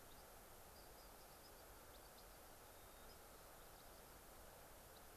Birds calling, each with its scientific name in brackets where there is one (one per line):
White-crowned Sparrow (Zonotrichia leucophrys)